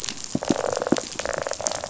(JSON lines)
{"label": "biophony, rattle response", "recorder": "SoundTrap 500"}